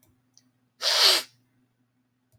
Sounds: Sniff